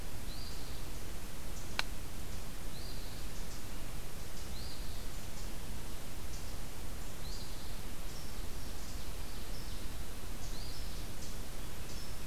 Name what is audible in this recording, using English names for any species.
Eastern Phoebe, Ovenbird